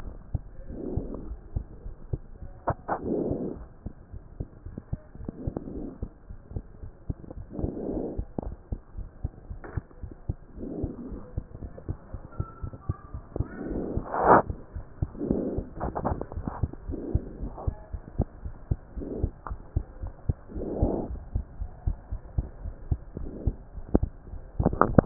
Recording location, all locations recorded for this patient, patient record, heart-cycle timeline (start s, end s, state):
pulmonary valve (PV)
aortic valve (AV)+pulmonary valve (PV)+tricuspid valve (TV)+mitral valve (MV)
#Age: Child
#Sex: Female
#Height: 100.0 cm
#Weight: 19.8 kg
#Pregnancy status: False
#Murmur: Absent
#Murmur locations: nan
#Most audible location: nan
#Systolic murmur timing: nan
#Systolic murmur shape: nan
#Systolic murmur grading: nan
#Systolic murmur pitch: nan
#Systolic murmur quality: nan
#Diastolic murmur timing: nan
#Diastolic murmur shape: nan
#Diastolic murmur grading: nan
#Diastolic murmur pitch: nan
#Diastolic murmur quality: nan
#Outcome: Normal
#Campaign: 2015 screening campaign
0.00	8.43	unannotated
8.43	8.56	S1
8.56	8.68	systole
8.68	8.80	S2
8.80	8.98	diastole
8.98	9.08	S1
9.08	9.20	systole
9.20	9.34	S2
9.34	9.50	diastole
9.50	9.60	S1
9.60	9.76	systole
9.76	9.86	S2
9.86	10.02	diastole
10.02	10.12	S1
10.12	10.28	systole
10.28	10.38	S2
10.38	10.58	diastole
10.58	10.72	S1
10.72	10.80	systole
10.80	10.94	S2
10.94	11.10	diastole
11.10	11.20	S1
11.20	11.36	systole
11.36	11.46	S2
11.46	11.62	diastole
11.62	11.70	S1
11.70	11.88	systole
11.88	11.98	S2
11.98	12.14	diastole
12.14	12.24	S1
12.24	12.38	systole
12.38	12.48	S2
12.48	12.62	diastole
12.62	12.72	S1
12.72	12.88	systole
12.88	12.96	S2
12.96	13.14	diastole
13.14	13.22	S1
13.22	13.36	systole
13.36	13.48	S2
13.48	13.66	diastole
13.66	13.84	S1
13.84	13.94	systole
13.94	14.08	S2
14.08	14.26	diastole
14.26	14.44	S1
14.44	14.48	systole
14.48	14.58	S2
14.58	14.76	diastole
14.76	14.84	S1
14.84	14.98	systole
14.98	15.12	S2
15.12	15.28	diastole
15.28	15.44	S1
15.44	15.56	systole
15.56	15.66	S2
15.66	15.82	diastole
15.82	15.96	S1
15.96	16.06	systole
16.06	16.20	S2
16.20	16.36	diastole
16.36	16.48	S1
16.48	16.60	systole
16.60	16.70	S2
16.70	16.86	diastole
16.86	17.00	S1
17.00	17.12	systole
17.12	17.24	S2
17.24	17.40	diastole
17.40	17.54	S1
17.54	17.64	systole
17.64	17.78	S2
17.78	17.94	diastole
17.94	18.04	S1
18.04	18.16	systole
18.16	18.30	S2
18.30	18.46	diastole
18.46	18.56	S1
18.56	18.72	systole
18.72	18.82	S2
18.82	18.98	diastole
18.98	19.06	S1
19.06	19.18	systole
19.18	19.34	S2
19.34	19.50	diastole
19.50	19.58	S1
19.58	19.72	systole
19.72	19.86	S2
19.86	20.02	diastole
20.02	20.12	S1
20.12	20.26	systole
20.26	20.40	S2
20.40	20.56	diastole
20.56	20.68	S1
20.68	20.80	systole
20.80	20.94	S2
20.94	21.08	diastole
21.08	21.20	S1
21.20	21.32	systole
21.32	21.42	S2
21.42	21.58	diastole
21.58	21.72	S1
21.72	21.84	systole
21.84	21.98	S2
21.98	22.12	diastole
22.12	22.20	S1
22.20	22.34	systole
22.34	22.48	S2
22.48	22.62	diastole
22.62	22.76	S1
22.76	22.88	systole
22.88	23.02	S2
23.02	23.20	diastole
23.20	23.32	S1
23.32	23.42	systole
23.42	23.58	S2
23.58	23.76	diastole
23.76	25.06	unannotated